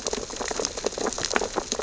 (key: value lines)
label: biophony, sea urchins (Echinidae)
recorder: SoundTrap 600 or HydroMoth